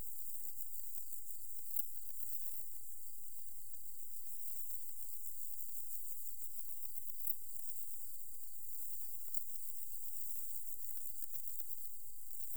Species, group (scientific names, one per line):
Pholidoptera femorata
Orthoptera